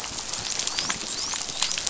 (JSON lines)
{"label": "biophony, dolphin", "recorder": "SoundTrap 500"}